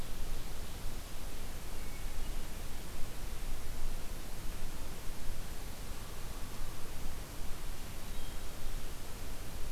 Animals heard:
forest ambience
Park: Marsh-Billings-Rockefeller National Historical Park